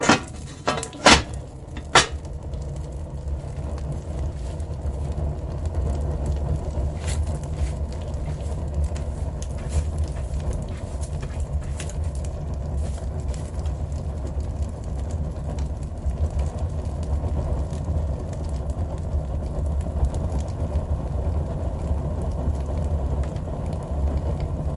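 Metal clanks as a furnace is opened and closed. 0:00.0 - 0:02.6
Burning flame crackles with increasing intensity. 0:01.5 - 0:24.8
Footsteps or sweeping sounds. 0:09.8 - 0:14.5

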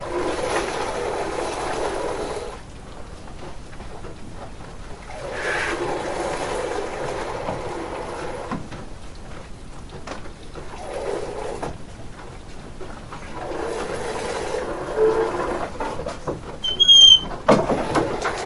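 A goat is being milked. 0:00.0 - 0:16.6
The door closes with a loud squeak. 0:16.6 - 0:18.5

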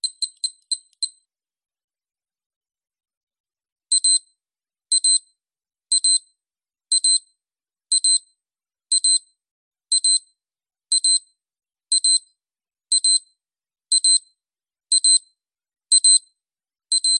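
A wristwatch beeps rhythmically and loudly. 0:00.0 - 0:01.1
A wristwatch alarm beeps loudly and repeatedly. 0:03.9 - 0:17.2

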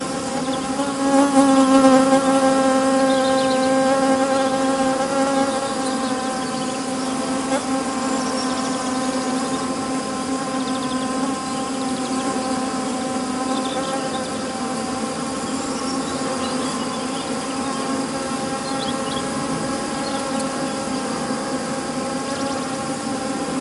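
Many bees are humming near a hive. 0:00.1 - 0:00.9
Bees humming at their hive and flying in changing directions. 0:01.0 - 0:03.4
Many bees are humming near a hive. 0:03.5 - 0:23.6

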